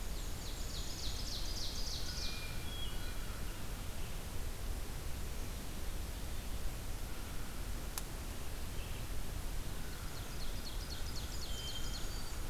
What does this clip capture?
Ovenbird, Hermit Thrush, Black-capped Chickadee